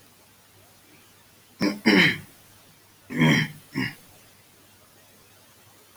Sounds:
Throat clearing